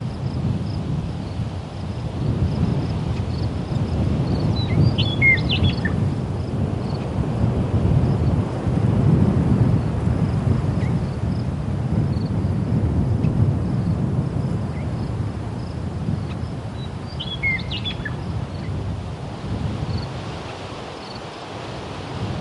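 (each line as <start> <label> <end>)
0.0 Crickets chirping, birds singing, wind gusting, and leaves rustling as the wind shakes the trees. 22.4
5.1 Birds chirping loudly and nearby for a short period. 6.4
17.1 Birds chirp loudly and nearby for a short period. 18.6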